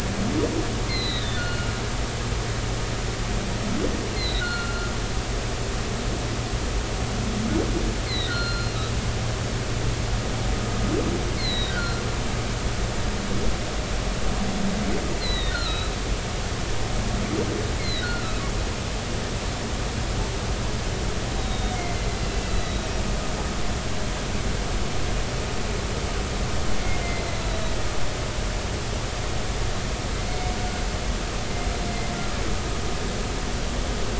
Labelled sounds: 1.3	1.7	humpback whale, 1.4 to 4.4 kHz
4.1	4.9	humpback whale, 1.3 to 4.3 kHz
8.1	8.7	humpback whale, 1.3 to 4.4 kHz
11.4	12.0	humpback whale, 1.3 to 4.4 kHz
15.2	15.9	humpback whale, 1.2 to 4.4 kHz
17.8	18.4	humpback whale, 1.2 to 4.4 kHz
21.4	21.8	humpback whale, 3.5 to 3.9 kHz
22.2	22.9	humpback whale, 2.6 to 4.0 kHz
27.0	27.6	humpback whale, 3.8 to 4.2 kHz
30.3	30.6	humpback whale, 2.1 to 2.3 kHz

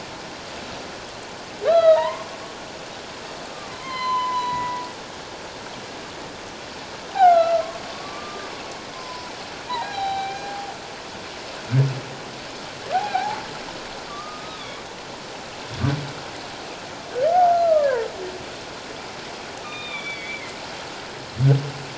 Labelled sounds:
1.6	2.3	humpback whale, 0.84 to 4.1 kHz
3.7	4.8	humpback whale, 0.91 to 7.2 kHz
7.1	8.5	humpback whale, 0.78 to 4.2 kHz
8.9	9.4	humpback whale, 0.84 to 1.1 kHz
9.8	10.6	humpback whale, 0.78 to 4.1 kHz
12.9	13.4	humpback whale, 0.78 to 0.94 kHz
14.1	14.8	humpback whale, 1.1 to 3.7 kHz
17.8	18.0	humpback whale, 1.4 to 1.8 kHz
19.6	20.5	humpback whale, 1.2 to 3.7 kHz

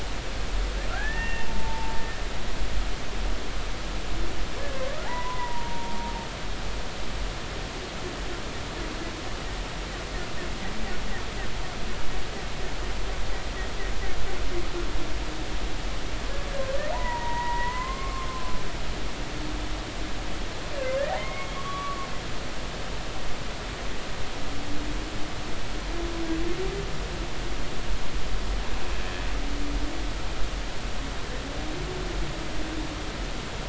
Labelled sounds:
0.9	2.0	humpback whale, 0.83 to 2.8 kHz
5.0	6.0	humpback whale, 0.80 to 1.1 kHz
16.6	18.5	humpback whale, 0.80 to 2.2 kHz
20.8	22.1	humpback whale, 0.80 to 3.5 kHz

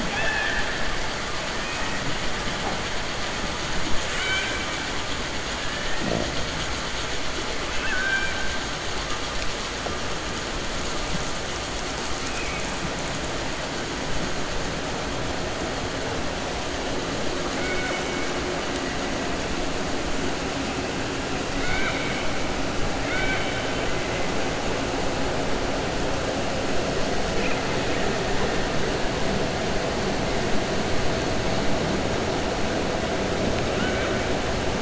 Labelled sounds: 0.0	0.7	killer whale, 0.24 to 3.6 kHz
1.6	2.0	killer whale, 1.2 to 2.6 kHz
4.0	4.7	killer whale, 1.4 to 4.6 kHz
7.7	8.4	killer whale, 0.89 to 3.2 kHz
12.2	12.7	killer whale, 2.2 to 2.6 kHz
17.5	18.2	killer whale, 0.55 to 3.7 kHz
23.0	23.8	killer whale, 1.4 to 4.6 kHz

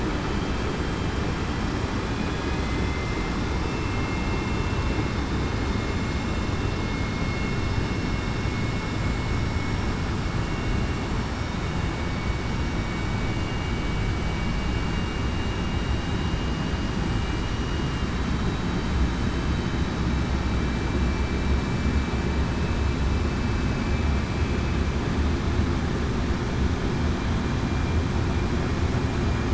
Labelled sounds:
2.5	3.3	vessel noise, 2.0 to 2.1 kHz
3.6	4.6	vessel noise, 2.6 to 2.7 kHz
9.5	9.9	vessel noise, 5.5 to 5.6 kHz
13.3	13.7	vessel noise, 2.8 to 2.9 kHz

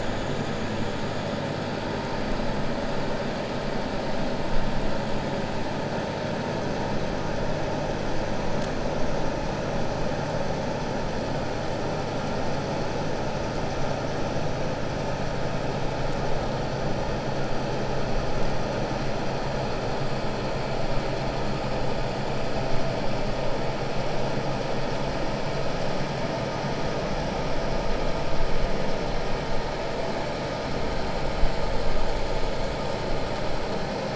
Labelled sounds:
1.2	1.6	vessel noise, 7.5 to 7.7 kHz

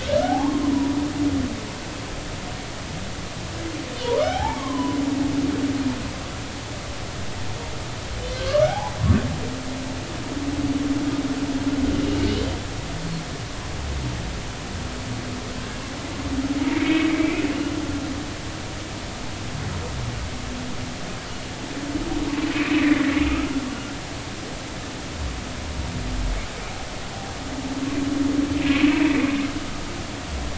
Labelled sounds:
0.2	1.0	humpback whale, 0.80 to 1.1 kHz
4.0	5.0	humpback whale, 0.80 to 3.3 kHz
8.3	8.9	humpback whale, 0.80 to 1.8 kHz
11.9	12.5	humpback whale, 2.8 to 3.2 kHz
16.6	17.4	humpback whale, 2.0 to 2.7 kHz
22.5	23.1	humpback whale, 1.7 to 2.7 kHz
28.6	29.3	humpback whale, 2.4 to 2.7 kHz

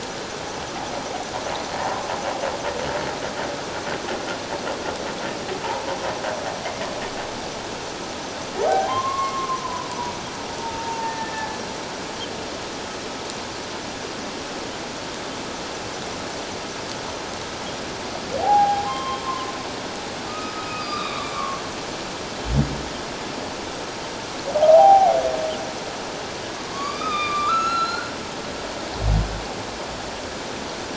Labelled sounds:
8.6	9.6	humpback whale, 0.78 to 1.2 kHz
10.6	11.6	humpback whale, 0.84 to 1.8 kHz
18.4	19.2	humpback whale, 0.78 to 3.2 kHz
20.3	21.6	humpback whale, 1.0 to 4.0 kHz
24.6	25.2	humpback whale, 0.78 to 1.0 kHz
26.5	28.1	humpback whale, 1.0 to 8.0 kHz

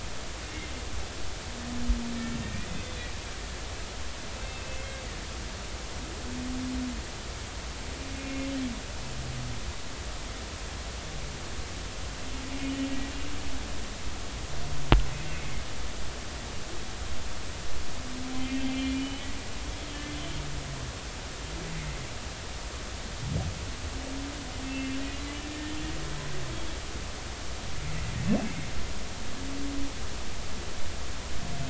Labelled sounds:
2.8	3.1	humpback whale, 3.3 to 3.6 kHz
4.4	4.9	humpback whale, 2.6 to 2.7 kHz
8.2	8.5	humpback whale, 2.1 to 2.8 kHz
15.3	15.6	humpback whale, 2.0 to 2.3 kHz
18.4	19.3	humpback whale, 2.3 to 3.1 kHz
21.6	22.0	humpback whale, 1.9 to 2.2 kHz
24.6	25.8	humpback whale, 1.7 to 2.7 kHz

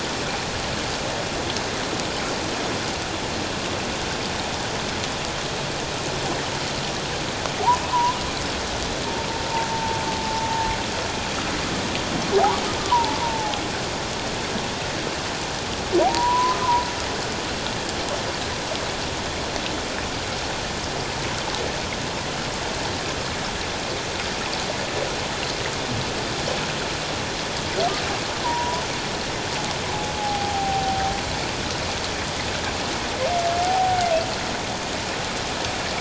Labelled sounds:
7.9	8.2	humpback whale, 0.91 to 1.1 kHz
9.7	10.0	humpback whale, 0.84 to 0.94 kHz
12.3	13.6	humpback whale, 0.78 to 1.2 kHz
16.0	16.6	humpback whale, 0.78 to 1.1 kHz
28.4	28.8	humpback whale, 0.88 to 1.1 kHz
30.2	31.1	humpback whale, 0.78 to 0.88 kHz
33.6	34.0	humpback whale, 0.78 to 0.91 kHz

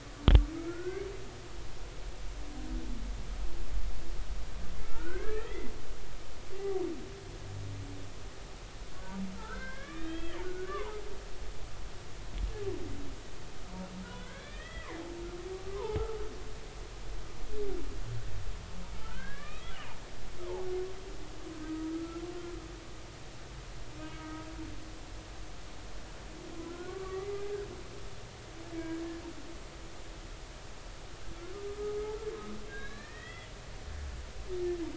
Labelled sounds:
0.6	1.1	humpback whale, 1.3 to 2.3 kHz
4.8	5.7	humpback whale, 1.2 to 2.5 kHz
9.4	11.1	humpback whale, 0.80 to 3.4 kHz
14.0	14.9	humpback whale, 1.4 to 3.5 kHz
15.8	16.2	humpback whale, 0.80 to 1.4 kHz
19.0	19.7	humpback whale, 1.1 to 2.6 kHz
21.6	22.3	humpback whale, 1.2 to 1.4 kHz
24.0	24.5	humpback whale, 1.2 to 1.3 kHz
26.6	27.4	humpback whale, 1.1 to 2.1 kHz
31.7	32.0	humpback whale, 1.2 to 1.3 kHz
32.7	33.5	humpback whale, 1.5 to 4.3 kHz

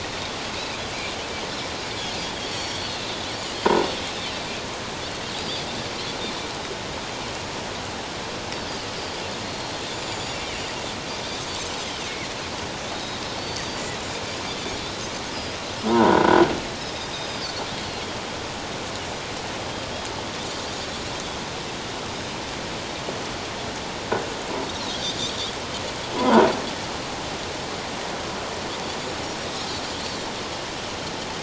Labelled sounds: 0.5	0.8	Pacific white-sided dolphin, 2.3 to 2.7 kHz
2.4	3.1	Pacific white-sided dolphin, 2.7 to 6.8 kHz
9.4	10.6	Pacific white-sided dolphin, 2.1 to 7.2 kHz
11.8	13.8	Pacific white-sided dolphin, 2.5 to 4.8 kHz
15.9	16.4	croaking sound likely from a nearby submerged object, 0.88 to 1.5 kHz
17.1	17.4	Pacific white-sided dolphin, 4.7 to 5.2 kHz
17.8	18.0	Pacific white-sided dolphin, 4.1 to 4.5 kHz
26.2	26.5	croaking sound likely from a nearby submerged object, 0.78 to 1.1 kHz

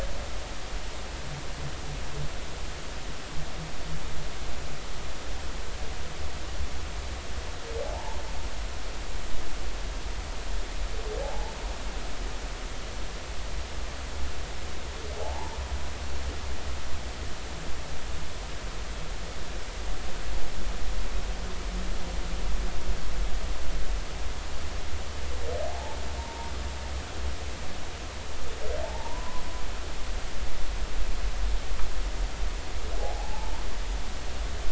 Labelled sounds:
7.8	8.2	humpback whale, 0.80 to 1.1 kHz
11.2	11.5	humpback whale, 0.80 to 0.96 kHz
15.2	15.6	humpback whale, 0.80 to 1.0 kHz
25.6	26.5	humpback whale, 0.80 to 1.1 kHz
28.8	29.4	humpback whale, 0.80 to 1.1 kHz
33.0	33.5	humpback whale, 0.80 to 0.99 kHz

